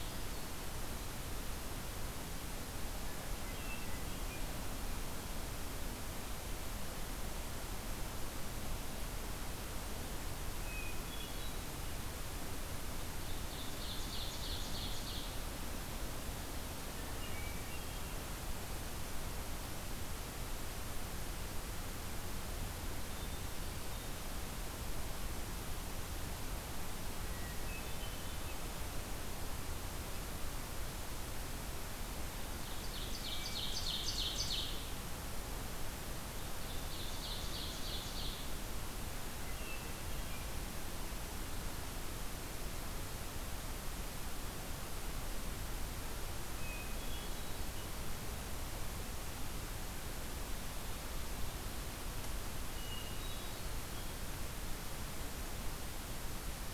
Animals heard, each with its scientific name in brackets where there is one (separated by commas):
Ovenbird (Seiurus aurocapilla), Hermit Thrush (Catharus guttatus)